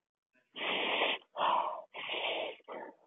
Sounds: Sniff